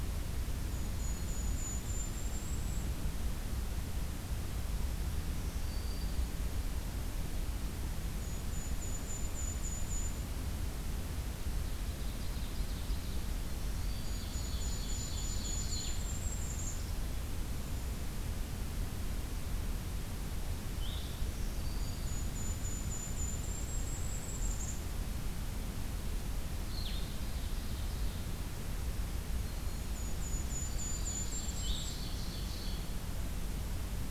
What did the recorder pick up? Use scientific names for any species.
Regulus satrapa, Setophaga virens, Seiurus aurocapilla, Vireo solitarius